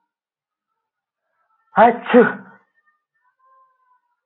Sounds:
Sneeze